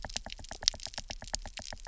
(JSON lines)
{"label": "biophony, knock", "recorder": "SoundTrap 300"}